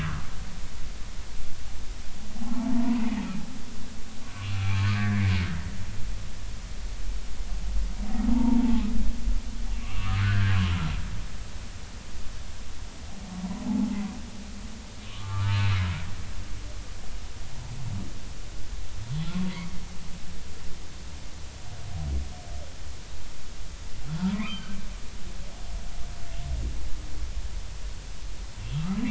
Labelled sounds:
2.5	3.0	humpback whale, 0.83 to 1.0 kHz
4.7	5.2	humpback whale, 0.96 to 1.9 kHz
8.3	8.6	humpback whale, 0.80 to 1.1 kHz
9.8	10.6	humpback whale, 1.0 to 2.8 kHz
15.1	15.6	humpback whale, 1.0 to 1.5 kHz
24.2	24.7	humpback whale, 0.86 to 3.2 kHz

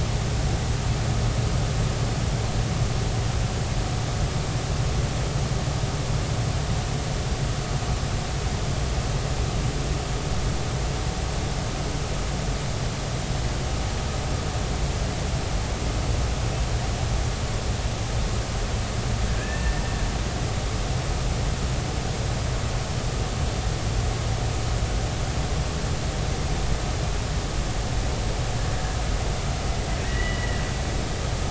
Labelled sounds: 19.4	19.8	killer whale, Bigg's (transient), 1.6 to 2.7 kHz
30.0	30.6	killer whale, Bigg's (transient), 1.6 to 3.0 kHz

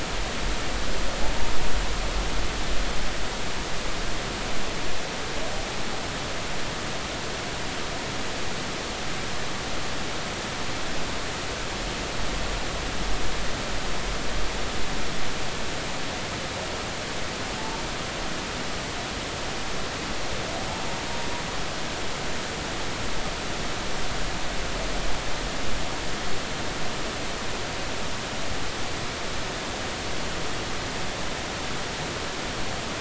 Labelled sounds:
17.6	17.8	humpback whale, 0.83 to 0.96 kHz

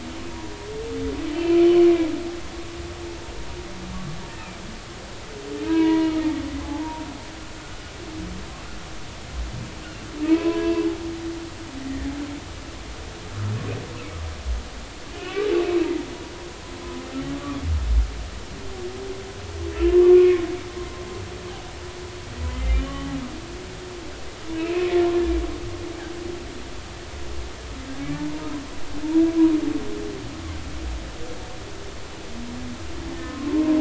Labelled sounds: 1.4	1.7	humpback whale, 2.3 to 2.6 kHz
4.3	4.6	humpback whale, 2.2 to 2.7 kHz
5.6	6.1	humpback whale, 0.90 to 2.0 kHz
6.6	7.0	humpback whale, 0.80 to 1.0 kHz
7.6	7.8	humpback whale, 1.4 to 1.5 kHz
10.2	10.9	humpback whale, 0.90 to 2.8 kHz
11.8	12.1	humpback whale, 1.6 to 2.0 kHz
15.1	15.4	humpback whale, 2.4 to 3.1 kHz
19.7	20.4	humpback whale, 1.0 to 2.8 kHz
22.5	23.1	humpback whale, 1.1 to 3.1 kHz
24.5	24.9	humpback whale, 2.2 to 2.8 kHz
28.2	28.5	humpback whale, 0.86 to 1.1 kHz
33.1	33.5	humpback whale, 0.99 to 1.9 kHz

